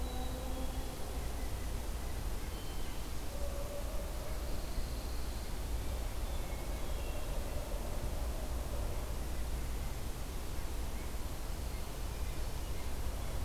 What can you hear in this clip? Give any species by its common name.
Black-capped Chickadee, Red-breasted Nuthatch, Pine Warbler, Hermit Thrush